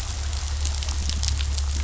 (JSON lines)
{"label": "anthrophony, boat engine", "recorder": "SoundTrap 500"}